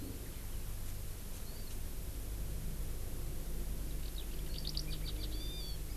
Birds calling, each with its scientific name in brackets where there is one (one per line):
Hawaii Amakihi (Chlorodrepanis virens)
Eurasian Skylark (Alauda arvensis)